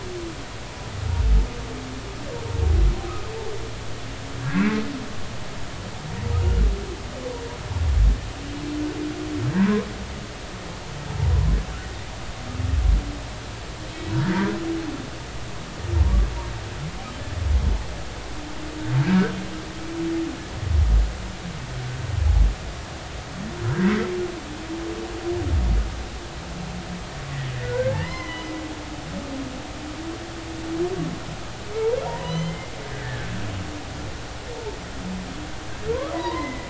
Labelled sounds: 9.5	9.9	humpback whale, 0.86 to 1.2 kHz
13.9	14.6	humpback whale, 1.4 to 4.0 kHz
16.0	16.3	humpback whale, 0.90 to 1.2 kHz
23.6	23.9	humpback whale, 1.3 to 2.0 kHz
27.6	28.5	humpback whale, 0.83 to 3.1 kHz
32.1	33.3	humpback whale, 0.90 to 4.2 kHz
35.9	36.6	humpback whale, 0.90 to 2.1 kHz

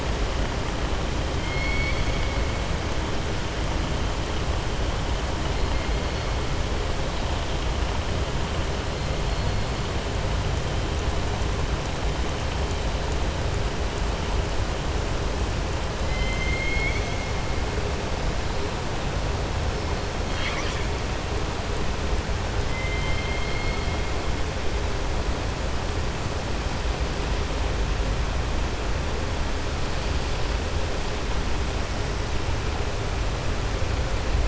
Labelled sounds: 1.3	2.3	killer whale, southern resident, 2.1 to 4.6 kHz
16.0	17.2	killer whale, southern resident, 2.0 to 4.5 kHz
20.2	20.9	killer whale, southern resident, 1.2 to 7.5 kHz
22.6	23.9	killer whale, southern resident, 1.3 to 3.2 kHz

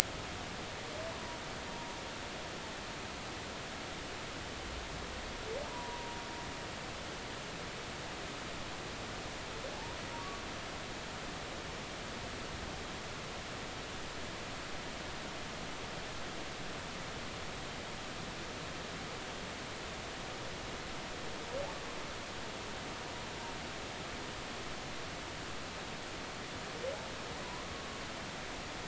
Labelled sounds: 5.7	6.2	humpback whale, 0.90 to 1.0 kHz
9.7	10.0	humpback whale, 0.80 to 0.99 kHz

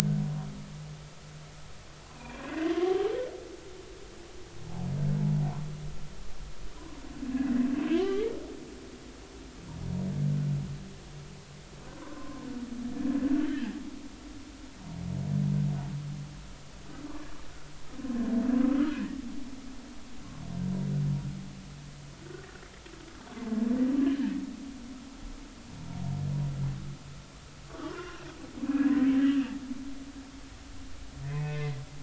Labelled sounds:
2.1	3.0	humpback whale, 1.0 to 2.7 kHz
7.9	8.3	humpback whale, 0.99 to 3.2 kHz
13.0	13.8	humpback whale, 0.93 to 3.2 kHz
18.0	18.3	humpback whale, 0.99 to 1.1 kHz
25.0	25.3	humpback whale, 1.5 to 1.9 kHz
27.8	28.2	humpback whale, 0.99 to 3.0 kHz
31.3	31.8	humpback whale, 1.7 to 2.6 kHz

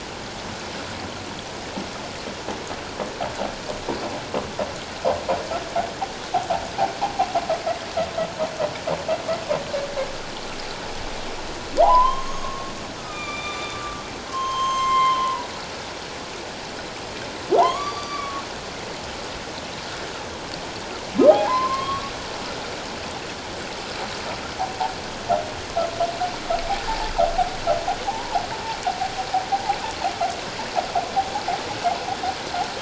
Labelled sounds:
11.8	15.5	humpback whale, 0.78 to 7.5 kHz
17.5	18.4	humpback whale, 0.78 to 4.9 kHz
21.3	22.1	humpback whale, 0.78 to 1.2 kHz
26.9	27.1	humpback whale, 0.81 to 0.97 kHz

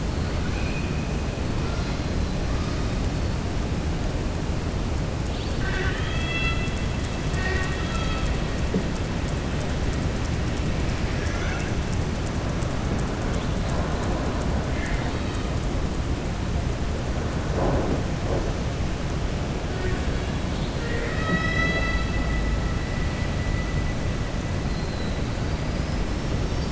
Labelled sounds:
0.3	1.0	killer whale, southern resident, 1.5 to 3.5 kHz
5.2	6.7	killer whale, southern resident, 1.1 to 4.7 kHz
11.1	11.7	killer whale, southern resident, 0.80 to 3.7 kHz
14.6	15.5	killer whale, southern resident, 1.4 to 4.5 kHz
20.4	22.1	killer whale, southern resident, 0.29 to 6.0 kHz
25.6	26.0	killer whale, southern resident, 4.7 to 5.2 kHz

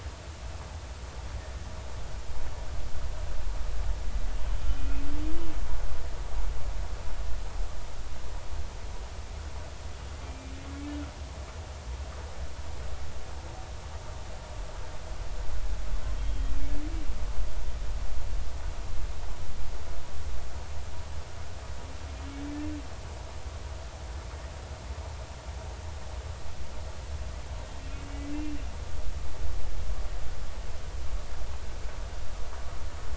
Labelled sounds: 4.6	5.1	humpback whale, 1.3 to 3.1 kHz
10.2	10.5	humpback whale, 2.2 to 2.4 kHz
16.2	16.5	humpback whale, 3.2 to 3.3 kHz

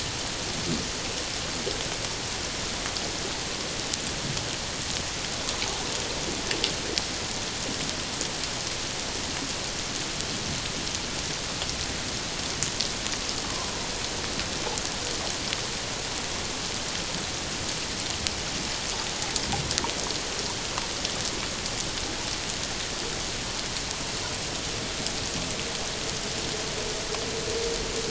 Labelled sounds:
13.4	13.7	humpback whale, 0.97 to 1.2 kHz

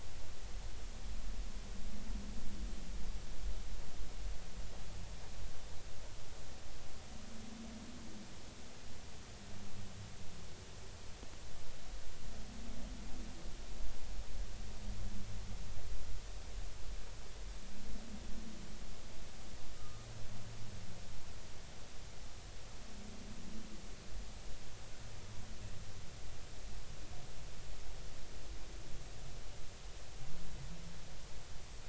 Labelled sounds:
19.8	20.1	humpback whale, 1.2 to 1.3 kHz

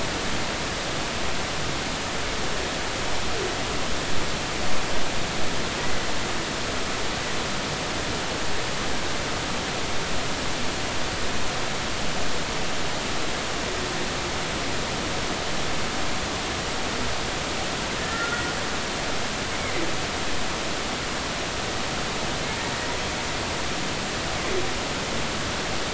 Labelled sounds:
5.8	6.0	humpback whale, 1.9 to 2.1 kHz
18.0	18.4	humpback whale, 1.3 to 1.9 kHz

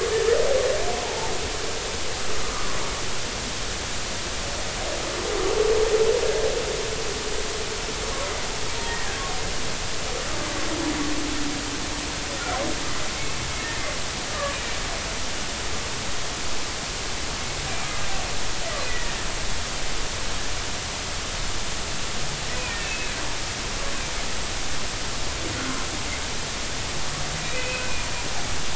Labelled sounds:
1.0	1.3	humpback whale, 0.80 to 0.99 kHz
2.4	2.8	humpback whale, 0.96 to 1.4 kHz
8.8	9.2	humpback whale, 1.5 to 2.0 kHz
14.3	14.6	humpback whale, 1.1 to 1.2 kHz
18.9	19.3	humpback whale, 1.7 to 2.0 kHz
22.5	23.1	humpback whale, 2.2 to 2.8 kHz
27.4	28.1	humpback whale, 2.3 to 2.6 kHz

